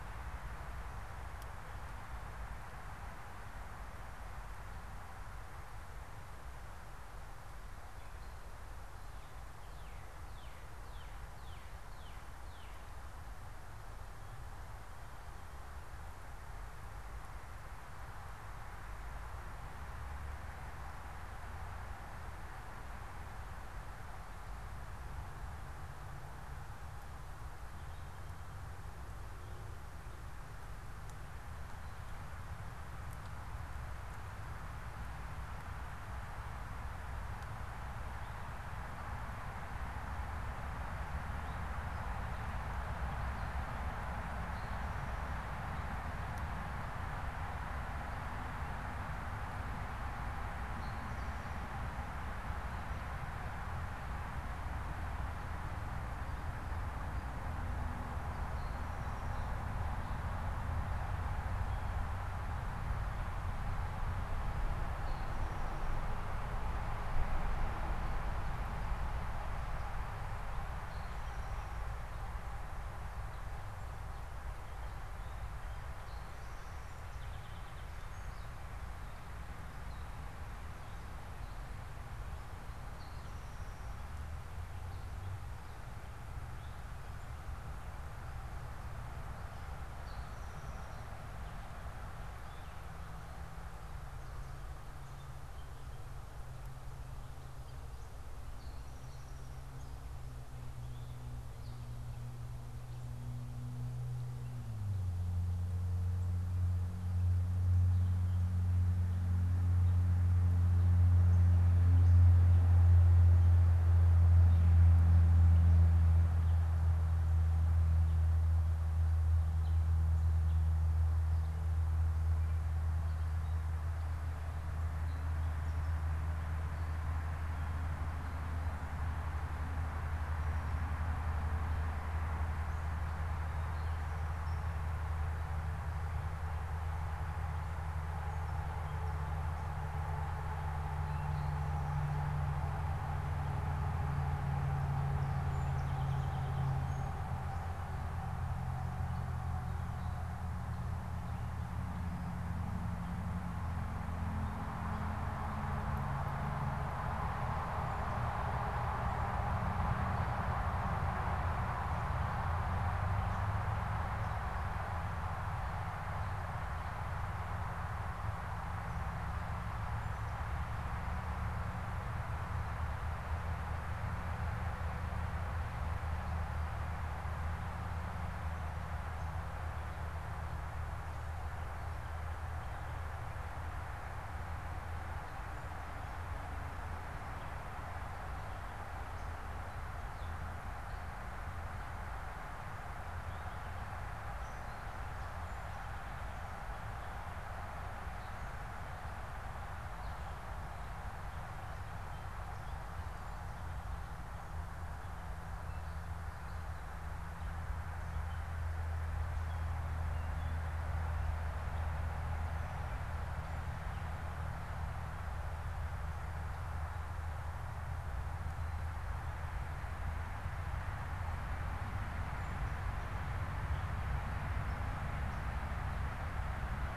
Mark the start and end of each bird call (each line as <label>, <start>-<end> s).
Northern Cardinal (Cardinalis cardinalis), 8.9-13.3 s
Gray Catbird (Dumetella carolinensis), 40.8-45.1 s
Gray Catbird (Dumetella carolinensis), 50.5-53.5 s
Gray Catbird (Dumetella carolinensis), 56.8-65.8 s
Gray Catbird (Dumetella carolinensis), 70.5-71.9 s
Song Sparrow (Melospiza melodia), 75.4-78.5 s
Eastern Towhee (Pipilo erythrophthalmus), 82.7-84.1 s
Eastern Towhee (Pipilo erythrophthalmus), 89.9-91.4 s
Eastern Towhee (Pipilo erythrophthalmus), 98.4-99.8 s
Song Sparrow (Melospiza melodia), 144.8-147.3 s